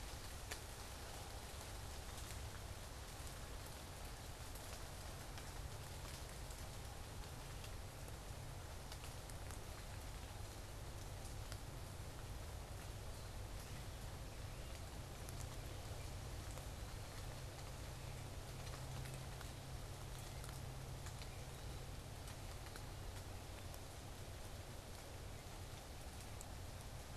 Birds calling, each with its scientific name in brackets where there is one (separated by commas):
unidentified bird